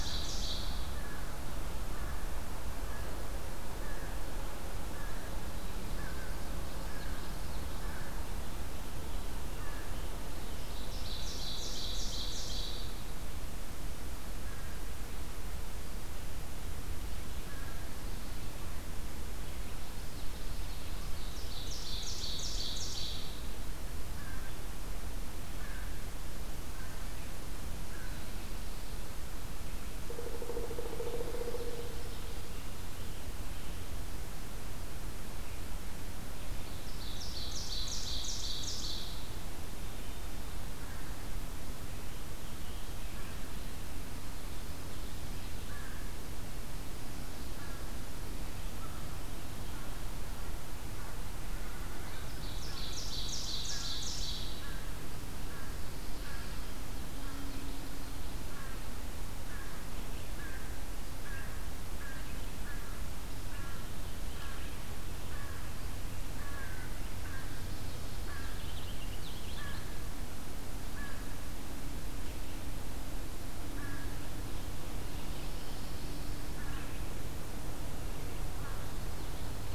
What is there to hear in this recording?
Ovenbird, American Crow, Common Yellowthroat, Pileated Woodpecker, Purple Finch, Pine Warbler